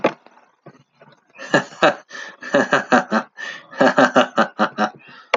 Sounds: Laughter